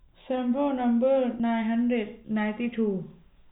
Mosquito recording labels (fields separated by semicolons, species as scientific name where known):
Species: no mosquito; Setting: cup